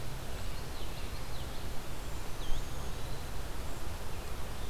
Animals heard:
Eastern Wood-Pewee (Contopus virens)
Common Yellowthroat (Geothlypis trichas)

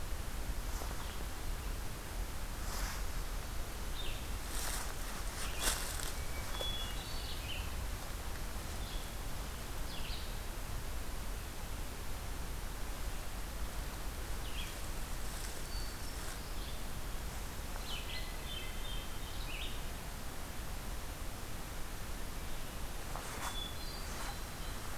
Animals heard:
Red-eyed Vireo (Vireo olivaceus)
Hermit Thrush (Catharus guttatus)

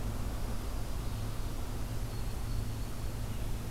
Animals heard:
Golden-crowned Kinglet (Regulus satrapa)
Dark-eyed Junco (Junco hyemalis)

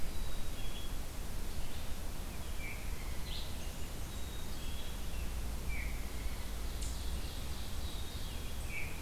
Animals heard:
Ovenbird (Seiurus aurocapilla)
Black-capped Chickadee (Poecile atricapillus)
Blackburnian Warbler (Setophaga fusca)
Veery (Catharus fuscescens)

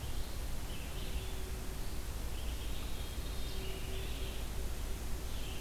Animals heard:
Veery (Catharus fuscescens)
Red-eyed Vireo (Vireo olivaceus)

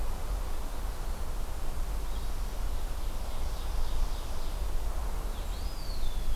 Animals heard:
Blue-headed Vireo (Vireo solitarius)
Ovenbird (Seiurus aurocapilla)
Eastern Wood-Pewee (Contopus virens)

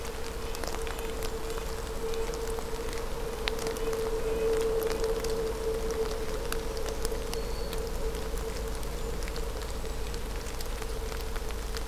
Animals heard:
Red-breasted Nuthatch (Sitta canadensis)
Golden-crowned Kinglet (Regulus satrapa)
Black-throated Green Warbler (Setophaga virens)

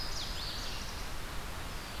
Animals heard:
Red-eyed Vireo (Vireo olivaceus)
Louisiana Waterthrush (Parkesia motacilla)

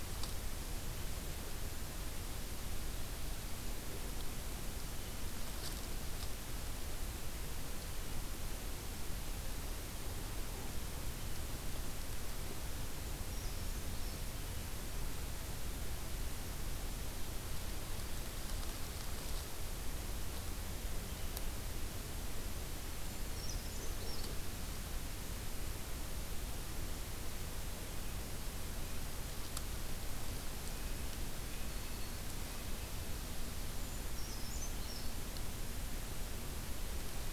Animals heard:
Brown Creeper (Certhia americana)

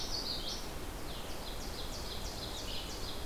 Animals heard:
Common Yellowthroat (Geothlypis trichas)
Ovenbird (Seiurus aurocapilla)

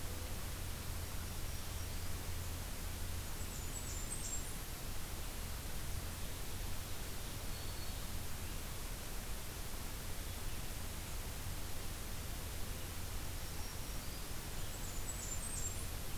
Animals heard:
Blackburnian Warbler (Setophaga fusca)
Black-throated Green Warbler (Setophaga virens)

